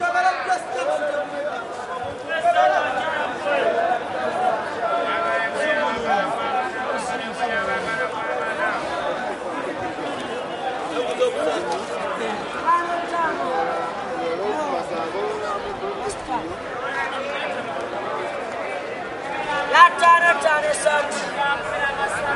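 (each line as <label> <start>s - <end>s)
People speaking and yelling in the distance at an outdoor market. 0.0s - 22.4s
A person is yelling nearby at a market. 19.4s - 22.4s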